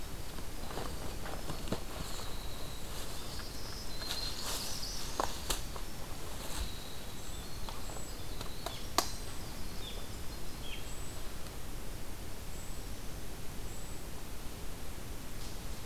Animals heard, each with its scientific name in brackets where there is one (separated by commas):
Black-throated Green Warbler (Setophaga virens), Northern Parula (Setophaga americana), Winter Wren (Troglodytes hiemalis), Golden-crowned Kinglet (Regulus satrapa)